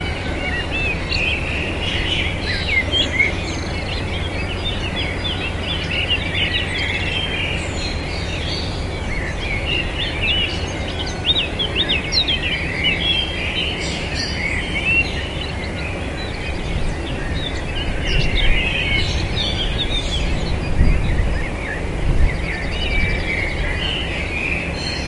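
Birds chirp intermittently at different pitches and intervals in a forest. 0.0 - 25.1
Continuous ambient hum similar to a distant waterfall in a forest. 0.0 - 25.1
Birds chirping in a forest. 0.4 - 1.4
Birds chirping rhythmically in a forest. 2.3 - 3.4
Birds chirp intermittently at a high pitch. 11.2 - 12.4
Rhythmic deep rumbling. 20.7 - 23.3

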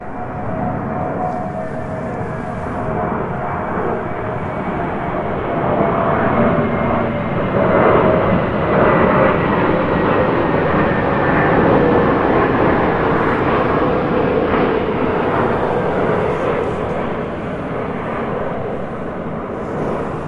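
An airplane engine grows louder as it approaches and then fades as it moves away. 0.0 - 20.3
Soft rustling and handling noises. 1.8 - 5.4
Soft rustling and handling noises. 15.6 - 20.3

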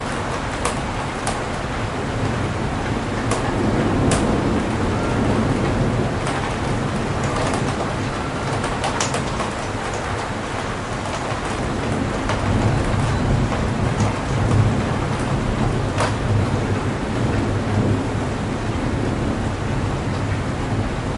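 Shower rain sounds. 0.0 - 21.2
A drop falling. 0.4 - 1.5
A drop falling. 3.2 - 4.5
Multiple drops falling. 8.0 - 9.7

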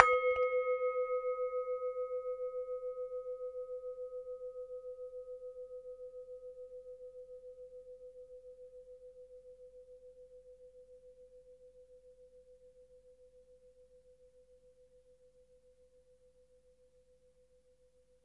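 A loud bell fades away slowly. 0.0 - 18.2

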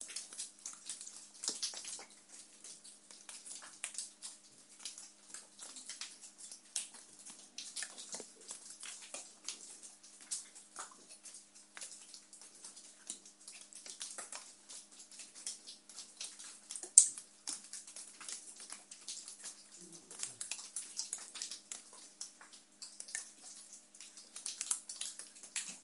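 Water is dripping inside a cave without echoes. 0.0 - 25.8

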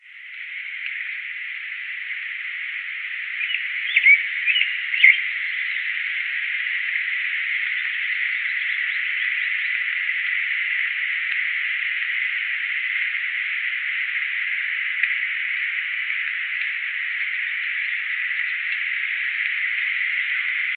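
Heavily distorted loud noise. 0.0 - 20.8
A bird chirps loudly nearby. 3.3 - 5.5

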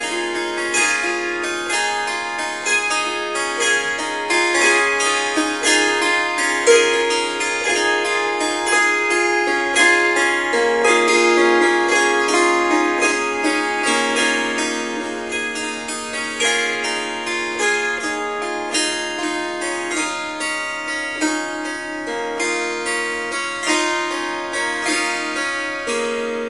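The strings of a Swar SanGam are being played. 0.0 - 26.5

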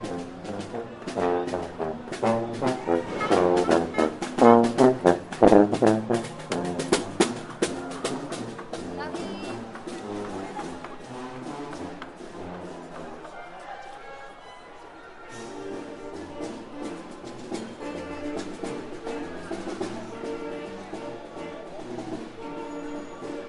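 A vibrant mix of instruments playing together, blending with the dynamic sounds of a city. 0.0 - 20.0
Many people are talking in a bustling city area. 3.5 - 23.5
Women talking in a crowded area. 8.7 - 11.0

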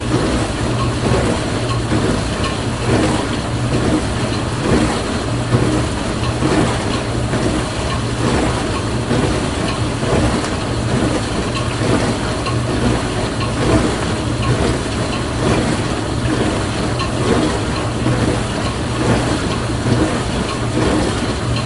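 A dishwasher runs loudly on a repeating cycle. 0.0 - 21.7

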